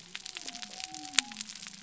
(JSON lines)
{"label": "biophony", "recorder": "SoundTrap 300"}